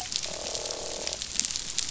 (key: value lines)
label: biophony, croak
recorder: SoundTrap 500